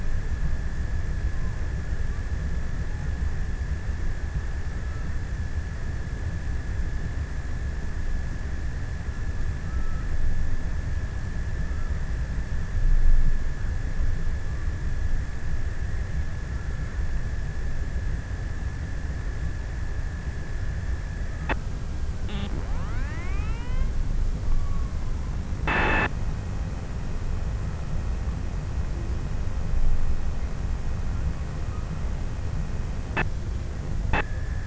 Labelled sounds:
9.0	13.2	killer whale, offshore, 0.58 to 1.9 kHz

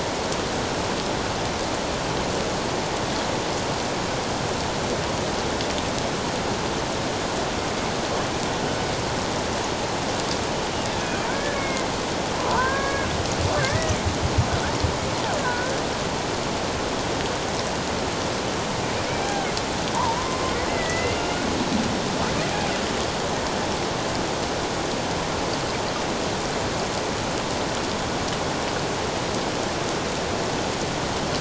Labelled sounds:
11.3	13.1	killer whale, Bigg's (transient), 0.88 to 2.3 kHz
13.5	13.9	killer whale, Bigg's (transient), 1.5 to 2.0 kHz
15.4	15.8	killer whale, Bigg's (transient), 1.4 to 1.8 kHz
19.2	20.4	killer whale, Bigg's (transient), 0.78 to 1.7 kHz
20.7	21.5	killer whale, Bigg's (transient), 1.4 to 2.9 kHz

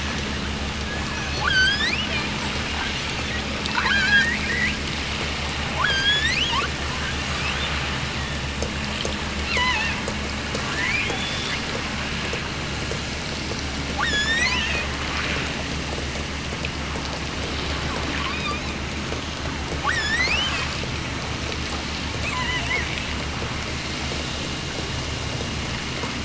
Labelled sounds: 0.9	2.2	killer whale, offshore, 0.39 to 8.0 kHz
2.7	4.8	killer whale, offshore, 0.64 to 7.7 kHz
5.7	6.7	killer whale, offshore, 0.73 to 8.0 kHz
7.2	7.9	killer whale, offshore, 2.0 to 4.2 kHz
9.4	10.1	killer whale, offshore, 0.66 to 5.1 kHz
10.6	11.6	killer whale, offshore, 1.1 to 3.7 kHz
13.9	14.9	killer whale, offshore, 0.64 to 8.0 kHz
18.0	18.9	killer whale, offshore, 0.84 to 5.5 kHz
19.7	20.7	killer whale, offshore, 0.75 to 8.0 kHz
22.2	22.9	killer whale, offshore, 0.48 to 3.3 kHz

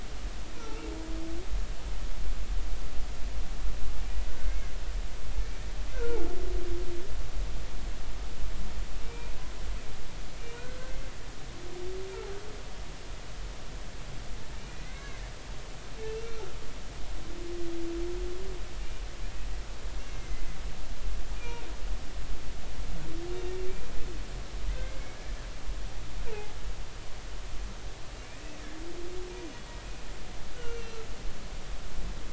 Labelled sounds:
0.6	0.9	humpback whale, 1.3 to 1.4 kHz
4.5	4.8	humpback whale, 2.0 to 2.2 kHz
5.9	6.2	humpback whale, 1.3 to 1.6 kHz
9.0	9.3	humpback whale, 2.3 to 2.5 kHz
14.6	15.2	humpback whale, 1.0 to 2.5 kHz
16.0	16.5	humpback whale, 1.3 to 2.8 kHz
20.1	20.4	humpback whale, 2.0 to 2.2 kHz
21.4	21.6	humpback whale, 2.3 to 2.5 kHz
24.8	25.2	humpback whale, 2.0 to 2.3 kHz
26.3	26.6	humpback whale, 0.80 to 0.99 kHz
30.6	31.0	humpback whale, 1.3 to 6.1 kHz

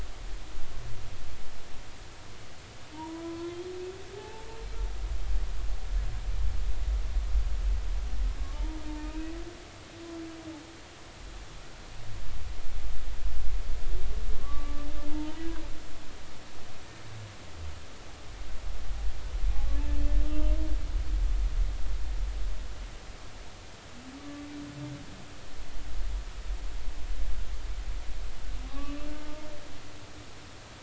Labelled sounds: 2.9	3.6	humpback whale, 0.86 to 1.1 kHz
4.2	4.5	humpback whale, 0.80 to 0.93 kHz
8.5	9.3	humpback whale, 0.83 to 2.6 kHz
14.3	15.4	humpback whale, 0.86 to 1.2 kHz
20.2	20.5	humpback whale, 1.2 to 3.1 kHz
24.2	24.4	humpback whale, 1.1 to 1.2 kHz
28.7	29.5	humpback whale, 0.86 to 2.7 kHz

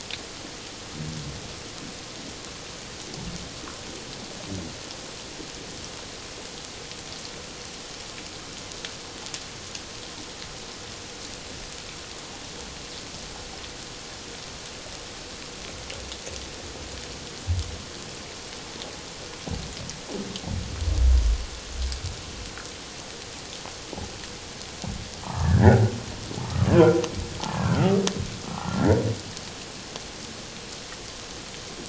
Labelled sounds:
25.2	25.9	humpback whale, 0.78 to 2.0 kHz
26.4	27.0	humpback whale, 1.1 to 1.6 kHz
27.5	29.0	humpback whale, 0.78 to 1.9 kHz

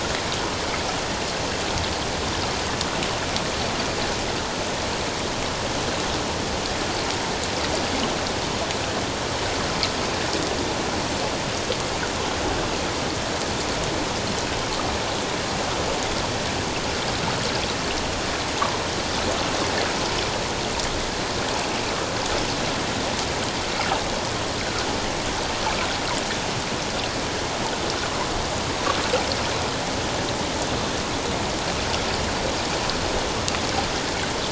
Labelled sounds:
24.6	24.9	water noise, 1.2 to 1.7 kHz

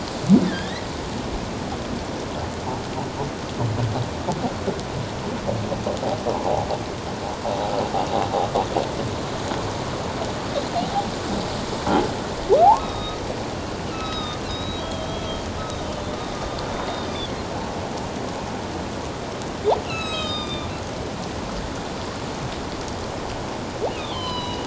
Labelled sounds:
0.5	0.9	humpback whale, 1.5 to 4.2 kHz
12.8	13.2	humpback whale, 1.2 to 3.9 kHz
13.9	15.5	humpback whale, 1.2 to 5.2 kHz
15.8	16.0	humpback whale, 2.9 to 3.1 kHz
16.7	17.4	humpback whale, 3.2 to 4.9 kHz
19.8	20.7	humpback whale, 1.2 to 7.9 kHz
24.0	24.6	humpback whale, 0.94 to 5.2 kHz

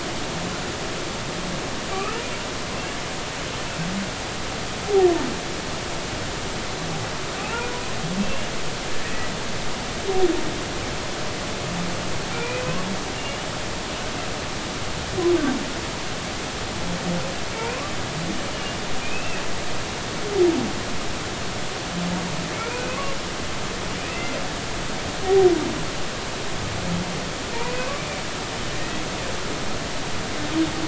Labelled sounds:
1.9	2.2	humpback whale, 1.1 to 2.9 kHz
7.4	8.5	humpback whale, 0.80 to 2.9 kHz
9.0	9.3	humpback whale, 1.8 to 2.0 kHz
12.3	13.5	humpback whale, 2.3 to 3.0 kHz
17.5	17.9	humpback whale, 0.86 to 2.7 kHz
19.0	19.8	humpback whale, 2.4 to 2.9 kHz
22.5	23.1	humpback whale, 0.99 to 2.6 kHz
27.5	27.9	humpback whale, 2.3 to 2.6 kHz

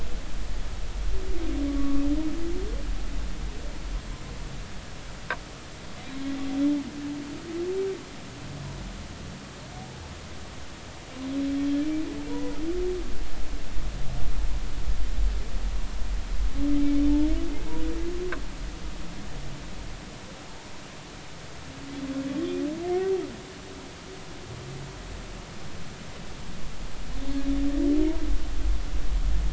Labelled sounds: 1.7	2.0	humpback whale, 1.1 to 1.2 kHz
12.3	12.6	humpback whale, 0.86 to 1.0 kHz

